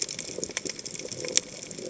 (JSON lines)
{"label": "biophony", "recorder": "HydroMoth"}